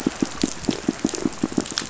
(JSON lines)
{"label": "biophony, pulse", "recorder": "SoundTrap 500"}